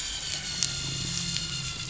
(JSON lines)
{"label": "anthrophony, boat engine", "recorder": "SoundTrap 500"}